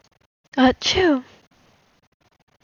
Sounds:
Sneeze